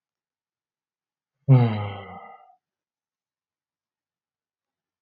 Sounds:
Sigh